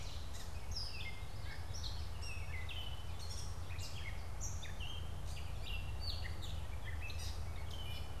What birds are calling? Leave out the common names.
Dumetella carolinensis, Geothlypis trichas